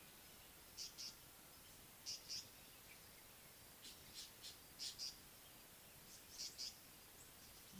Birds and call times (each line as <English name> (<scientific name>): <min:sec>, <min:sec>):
Tawny-flanked Prinia (Prinia subflava): 0:01.0, 0:06.5
Northern Puffback (Dryoscopus gambensis): 0:04.8